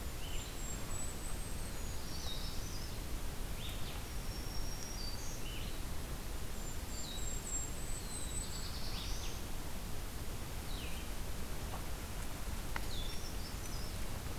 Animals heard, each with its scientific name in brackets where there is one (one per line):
Brown Creeper (Certhia americana)
Golden-crowned Kinglet (Regulus satrapa)
Black-throated Blue Warbler (Setophaga caerulescens)
Blue-headed Vireo (Vireo solitarius)
Black-throated Green Warbler (Setophaga virens)